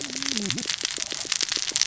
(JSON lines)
{"label": "biophony, cascading saw", "recorder": "SoundTrap 600 or HydroMoth"}